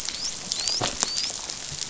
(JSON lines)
{"label": "biophony, dolphin", "recorder": "SoundTrap 500"}